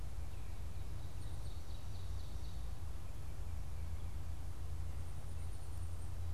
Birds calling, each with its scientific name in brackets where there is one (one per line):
Black-capped Chickadee (Poecile atricapillus)